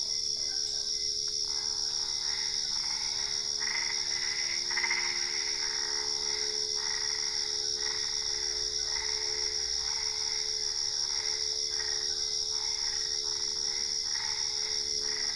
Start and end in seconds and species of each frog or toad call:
0.0	1.0	Boana lundii
1.4	15.3	Boana albopunctata
7.9	9.4	Boana lundii
10.8	12.1	Boana lundii
Brazil, 10:30pm

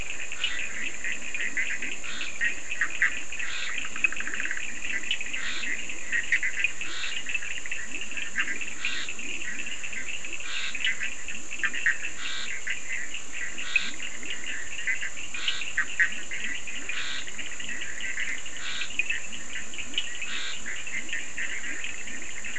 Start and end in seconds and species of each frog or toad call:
0.0	21.0	Scinax perereca
0.0	22.5	Boana bischoffi
0.0	22.5	Leptodactylus latrans
0.0	22.5	Sphaenorhynchus surdus
Brazil, 2:00am

